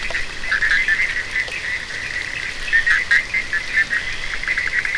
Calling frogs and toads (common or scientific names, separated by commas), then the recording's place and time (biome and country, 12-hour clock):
Bischoff's tree frog, Scinax perereca
Atlantic Forest, Brazil, 3:15am